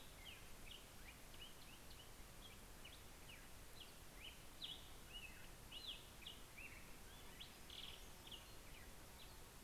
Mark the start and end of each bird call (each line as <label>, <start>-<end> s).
Black-headed Grosbeak (Pheucticus melanocephalus), 0.0-9.6 s
Hermit Warbler (Setophaga occidentalis), 6.8-9.0 s